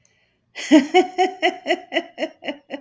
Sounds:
Laughter